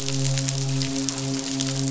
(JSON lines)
{"label": "biophony, midshipman", "recorder": "SoundTrap 500"}